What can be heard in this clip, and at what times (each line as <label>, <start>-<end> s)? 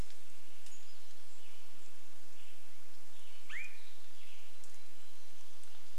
Pacific-slope Flycatcher call, 0-2 s
Western Tanager song, 0-6 s
Swainson's Thrush call, 2-4 s
warbler song, 4-6 s